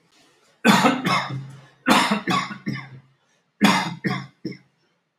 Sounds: Cough